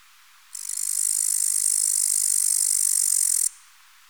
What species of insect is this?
Tettigonia cantans